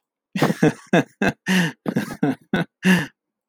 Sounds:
Laughter